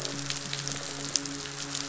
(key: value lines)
label: biophony, midshipman
recorder: SoundTrap 500